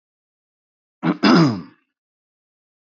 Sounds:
Throat clearing